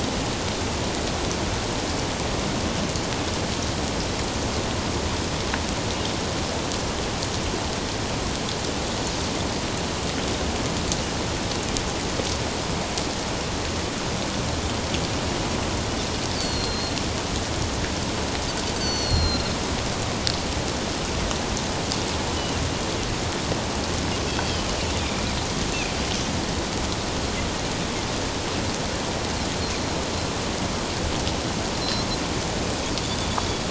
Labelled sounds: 16.4	16.9	Pacific white-sided dolphin, 4.1 to 4.7 kHz
18.7	19.5	Pacific white-sided dolphin, 4.1 to 6.3 kHz
22.4	22.6	Pacific white-sided dolphin, 2.7 to 3.1 kHz
24.3	25.3	Pacific white-sided dolphin, 2.2 to 4.7 kHz
31.8	32.1	Pacific white-sided dolphin, 4.0 to 4.2 kHz

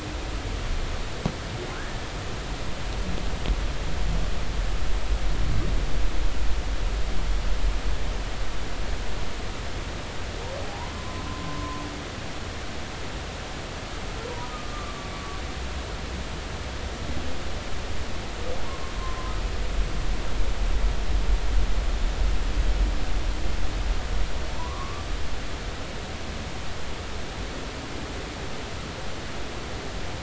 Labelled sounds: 1.7	2.0	humpback whale, 1.4 to 1.8 kHz
10.6	11.8	humpback whale, 0.80 to 1.1 kHz
14.5	15.4	humpback whale, 1.0 to 1.3 kHz
18.6	19.3	humpback whale, 0.93 to 1.1 kHz
24.6	25.0	humpback whale, 0.90 to 1.2 kHz

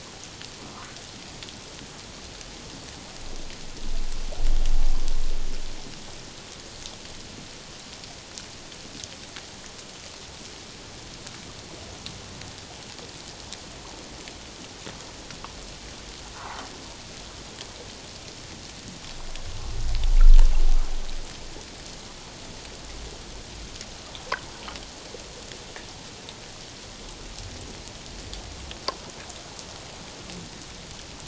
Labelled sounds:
16.3	16.6	humpback whale, 0.78 to 1.5 kHz

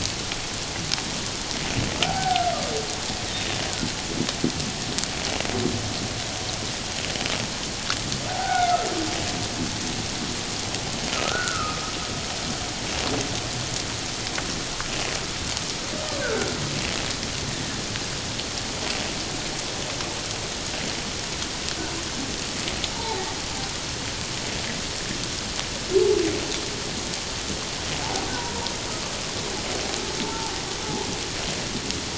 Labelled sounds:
2.0	2.5	humpback whale, 0.78 to 1.7 kHz
8.3	8.8	humpback whale, 0.78 to 2.3 kHz
11.1	11.9	humpback whale, 1.2 to 1.5 kHz
16.2	16.5	humpback whale, 1.3 to 1.7 kHz
22.9	23.3	humpback whale, 0.78 to 1.0 kHz
28.3	28.7	humpback whale, 0.88 to 1.0 kHz
30.2	30.5	humpback whale, 0.78 to 0.97 kHz

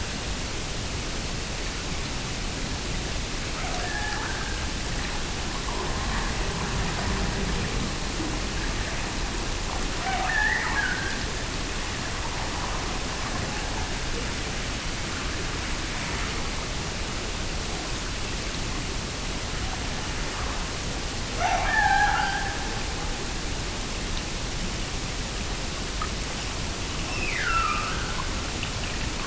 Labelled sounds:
3.5	4.8	killer whale, Bigg's (transient), Gulf of Alaska transient, 0.53 to 1.8 kHz
9.8	11.4	killer whale, Bigg's (transient), Gulf of Alaska transient, 0.55 to 2.1 kHz
21.3	23.0	killer whale, Bigg's (transient), Gulf of Alaska transient, 0.44 to 6.1 kHz
27.0	28.3	killer whale, Bigg's (transient), Gulf of Alaska transient, 1.2 to 5.4 kHz

